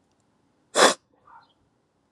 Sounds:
Sniff